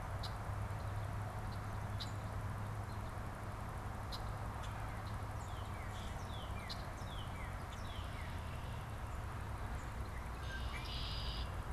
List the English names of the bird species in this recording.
Red-winged Blackbird, Northern Cardinal, Common Grackle